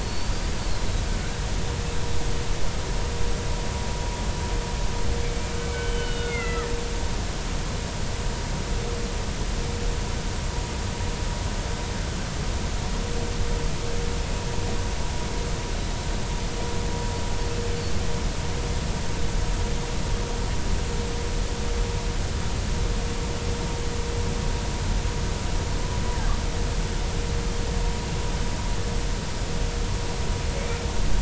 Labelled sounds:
0.0	0.9	killer whale, Bigg's (transient), 4.0 to 4.8 kHz
5.2	6.7	killer whale, Bigg's (transient), 1.2 to 3.7 kHz

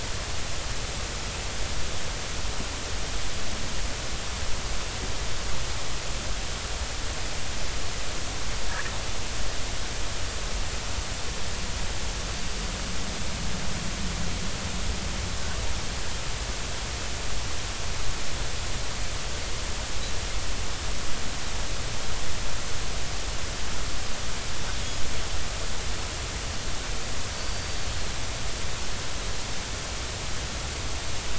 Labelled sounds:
27.4	27.8	Pacific white-sided dolphin, 4.4 to 4.7 kHz

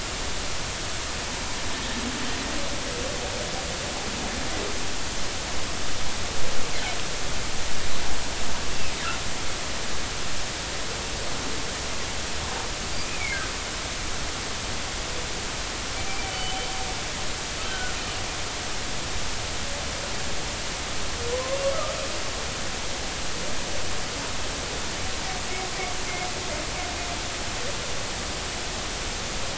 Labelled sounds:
14.0	14.4	humpback whale, 2.0 to 2.6 kHz
16.3	16.7	humpback whale, 2.9 to 3.1 kHz
17.7	18.0	humpback whale, 1.3 to 1.6 kHz

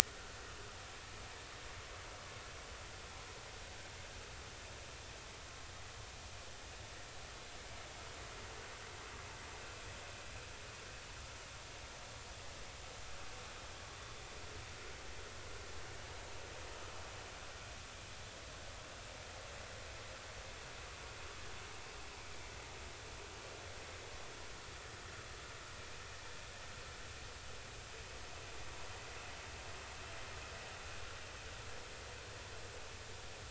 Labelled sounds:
0.1	0.4	vessel noise, 1.3 to 1.6 kHz

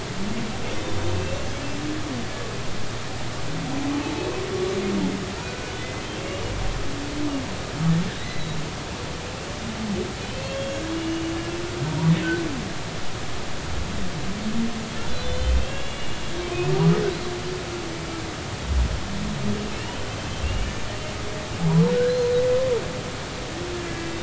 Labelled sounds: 2.1	2.5	humpback whale, 2.6 to 2.8 kHz
5.3	6.4	humpback whale, 1.3 to 2.9 kHz
8.2	8.6	humpback whale, 1.9 to 4.1 kHz
10.3	11.2	humpback whale, 2.5 to 3.3 kHz
15.2	16.2	humpback whale, 2.5 to 3.6 kHz
19.7	20.7	humpback whale, 2.5 to 3.2 kHz
21.9	22.3	humpback whale, 1.4 to 6.4 kHz

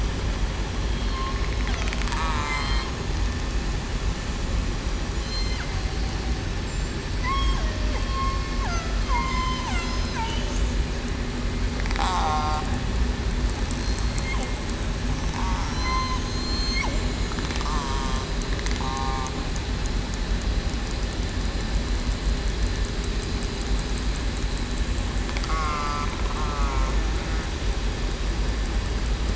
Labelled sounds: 0.9	1.2	killer whale, southern resident, 3.2 to 3.3 kHz
2.1	2.6	killer whale, southern resident, 1.1 to 1.3 kHz
5.2	5.6	killer whale, southern resident, 3.0 to 8.0 kHz
7.0	8.0	killer whale, southern resident, 0.56 to 8.0 kHz
9.1	9.7	killer whale, southern resident, 0.87 to 5.2 kHz
12.0	12.7	killer whale, southern resident, 0.73 to 1.4 kHz
13.8	14.3	killer whale, southern resident, 4.2 to 4.3 kHz
15.7	16.8	killer whale, southern resident, 2.0 to 7.4 kHz
17.6	18.1	killer whale, southern resident, 1.1 to 1.2 kHz
25.5	26.0	killer whale, southern resident, 0.98 to 2.2 kHz
26.4	26.9	killer whale, southern resident, 1.1 to 1.4 kHz

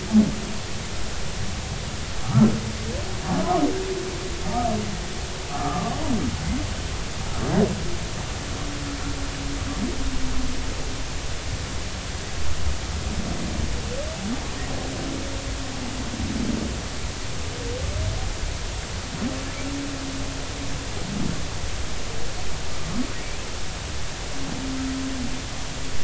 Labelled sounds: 5.5	5.9	humpback whale, 1.0 to 1.4 kHz

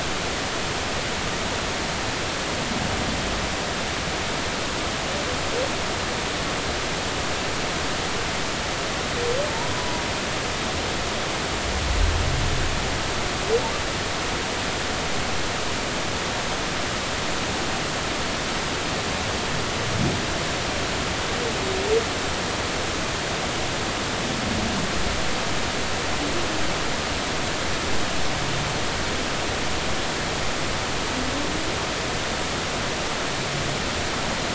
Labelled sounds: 9.7	10.0	humpback whale, 0.93 to 1.0 kHz

